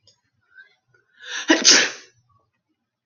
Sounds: Sneeze